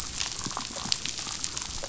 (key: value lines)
label: biophony, damselfish
recorder: SoundTrap 500